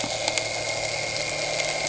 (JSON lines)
{"label": "anthrophony, boat engine", "recorder": "HydroMoth"}